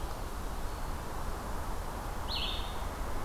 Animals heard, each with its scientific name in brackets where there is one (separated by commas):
Red-eyed Vireo (Vireo olivaceus)